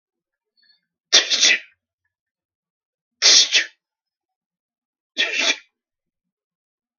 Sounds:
Sneeze